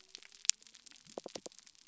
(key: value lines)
label: biophony
recorder: SoundTrap 300